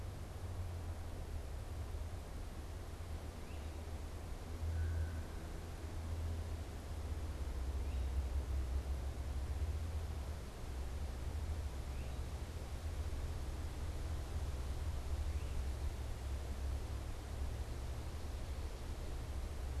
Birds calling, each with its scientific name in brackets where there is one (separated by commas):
Great Crested Flycatcher (Myiarchus crinitus), American Crow (Corvus brachyrhynchos)